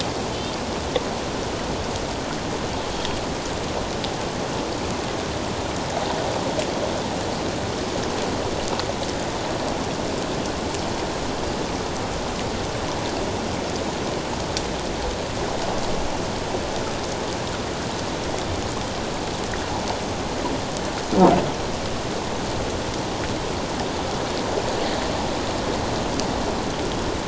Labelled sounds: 2.9	3.2	Pacific white-sided dolphin, 3.2 to 3.3 kHz

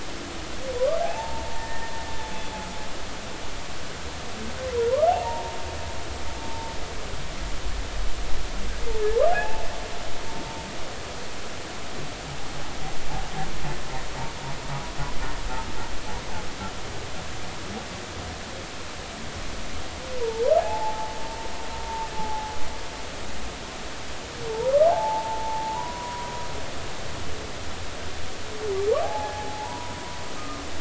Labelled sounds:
1.0	1.7	humpback whale, 0.80 to 0.96 kHz
2.6	2.9	humpback whale, 1.7 to 1.9 kHz
4.9	5.5	humpback whale, 0.80 to 1.5 kHz
9.3	9.6	humpback whale, 0.80 to 2.7 kHz
20.2	21.1	humpback whale, 0.80 to 1.0 kHz
22.2	22.5	humpback whale, 0.80 to 0.90 kHz
24.5	26.3	humpback whale, 0.80 to 1.2 kHz
29.0	30.6	humpback whale, 0.80 to 1.3 kHz

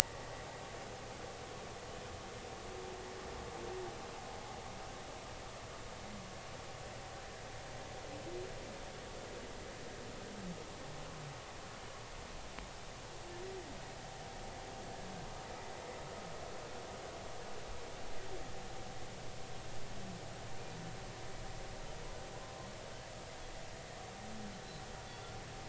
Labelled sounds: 25.1	25.3	humpback whale, 3.3 to 3.6 kHz

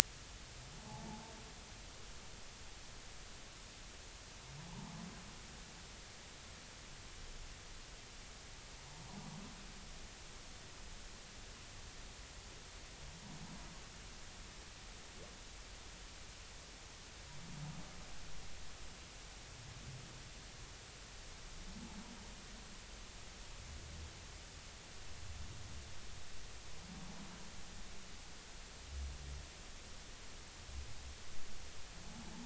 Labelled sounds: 0.9	1.2	humpback whale, 0.80 to 0.93 kHz
4.7	5.0	humpback whale, 0.80 to 1.2 kHz

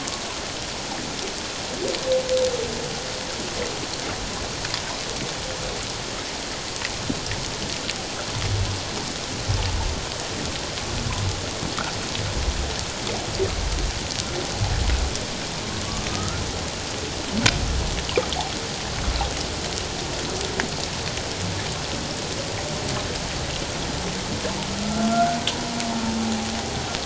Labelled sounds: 15.8	16.4	humpback whale, 1.0 to 1.4 kHz
24.8	25.4	humpback whale, 1.3 to 1.6 kHz

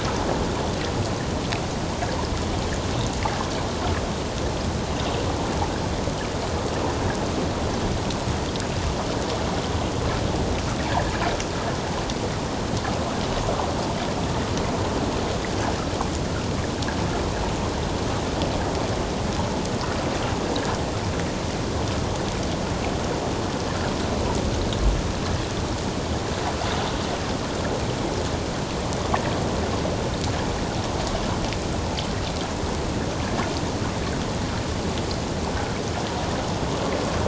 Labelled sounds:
33.2	33.5	water noise, 1.6 to 1.8 kHz
35.5	35.8	water noise, 1.3 to 1.6 kHz

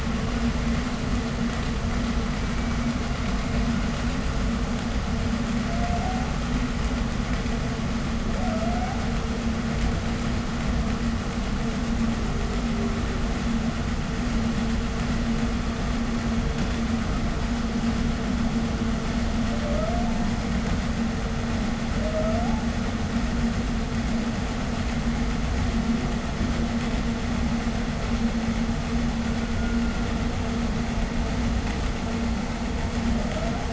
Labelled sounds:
5.6	6.4	humpback whale, 0.55 to 0.90 kHz
8.1	9.1	humpback whale, 0.52 to 0.93 kHz
12.0	13.4	humpback whale, 0.29 to 0.52 kHz
19.4	20.4	humpback whale, ascending moan, 0.50 to 1.5 kHz
21.8	22.7	humpback whale, ascending moan, 0.48 to 1.5 kHz
29.0	30.2	humpback whale, 1.3 to 1.6 kHz
32.9	33.7	humpback whale, ascending moan, 0.43 to 1.6 kHz

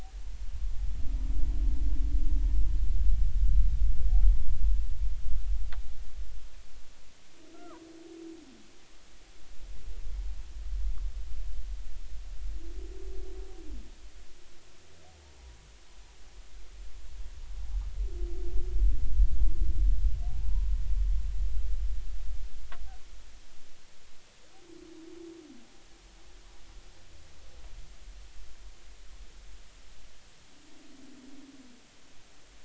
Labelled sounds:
7.5	7.8	humpback whale, 0.90 to 1.5 kHz
20.3	20.8	humpback whale, 0.80 to 1.1 kHz

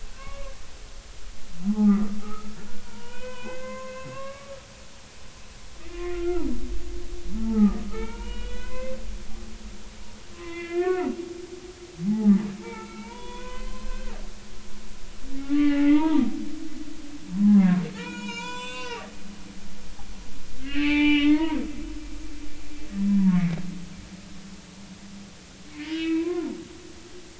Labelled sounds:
0.2	0.5	humpback whale, 1.0 to 2.3 kHz
1.7	4.5	humpback whale, 0.80 to 6.8 kHz
6.1	6.5	humpback whale, 1.2 to 1.5 kHz
7.4	9.0	humpback whale, 0.80 to 4.0 kHz
10.3	11.1	humpback whale, 0.96 to 4.5 kHz
12.1	14.1	humpback whale, 0.80 to 4.2 kHz
15.4	16.3	humpback whale, 0.80 to 2.3 kHz
17.4	19.1	humpback whale, 0.80 to 7.9 kHz
20.6	21.6	humpback whale, 0.83 to 3.3 kHz
23.1	23.6	humpback whale, 0.86 to 2.3 kHz
25.7	26.5	humpback whale, 0.93 to 3.3 kHz

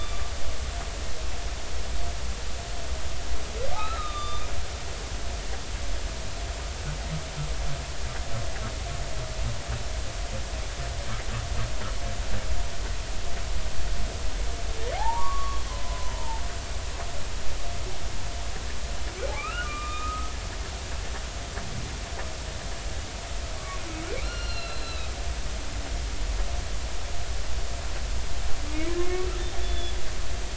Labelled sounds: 3.7	4.5	humpback whale, 1.1 to 4.1 kHz
14.9	16.1	humpback whale, 0.80 to 1.2 kHz
19.3	20.3	humpback whale, 1.0 to 3.7 kHz
23.6	25.1	humpback whale, 1.1 to 5.8 kHz
29.0	29.3	humpback whale, 1.0 to 2.3 kHz
29.6	30.0	humpback whale, 3.4 to 3.5 kHz

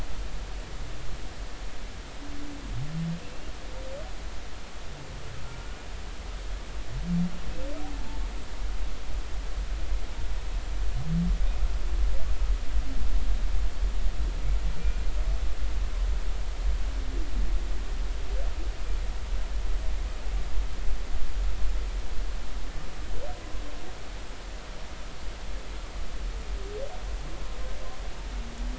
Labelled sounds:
14.8	15.1	humpback whale, 2.3 to 2.4 kHz

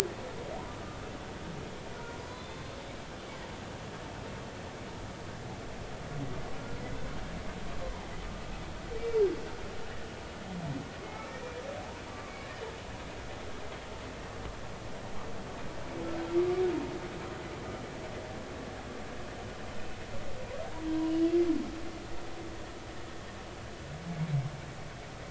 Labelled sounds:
2.2	2.6	humpback whale, 3.4 to 4.1 kHz
12.0	12.6	humpback whale, 2.1 to 2.5 kHz

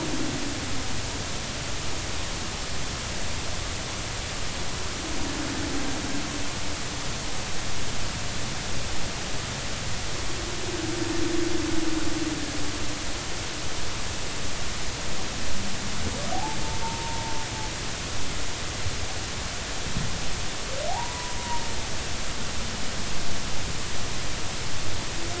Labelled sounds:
16.3	17.3	humpback whale, 0.80 to 0.99 kHz
20.9	21.4	humpback whale, 0.80 to 1.0 kHz

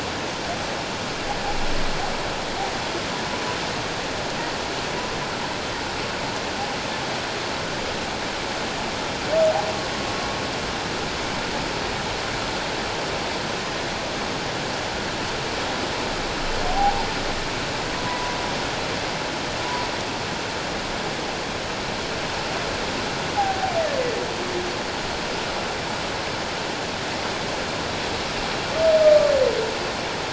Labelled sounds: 16.7	17.1	humpback whale, 0.78 to 0.97 kHz
18.0	18.4	humpback whale, 0.94 to 1.0 kHz
23.4	23.7	humpback whale, 0.78 to 0.88 kHz

